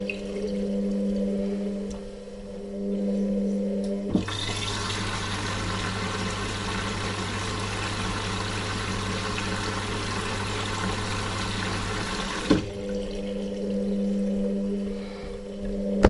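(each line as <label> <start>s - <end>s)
A washing machine preparing for a cycle with soft mechanical clicks and faint humming. 0.1s - 4.4s
Water flows into the washing machine with a steady, gurgling sound, indicating the start of a cycle. 4.5s - 13.2s
A washing machine begins its wash cycle with rhythmic mechanical movements and splashing water sounds. 13.2s - 16.1s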